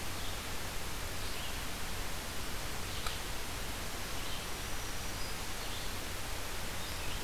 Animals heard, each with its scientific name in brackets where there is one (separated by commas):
Black-throated Green Warbler (Setophaga virens), Red-eyed Vireo (Vireo olivaceus)